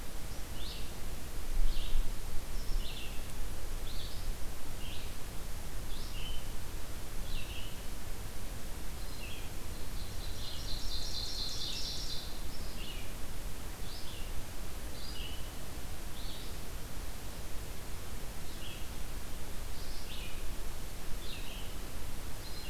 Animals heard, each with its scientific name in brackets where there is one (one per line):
Red-eyed Vireo (Vireo olivaceus)
Ovenbird (Seiurus aurocapilla)